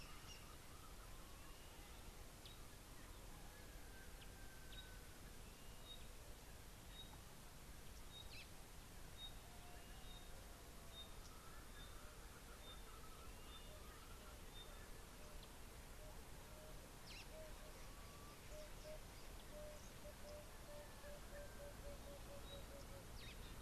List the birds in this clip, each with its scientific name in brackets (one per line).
Emerald-spotted Wood-Dove (Turtur chalcospilos)
Parrot-billed Sparrow (Passer gongonensis)
Pygmy Batis (Batis perkeo)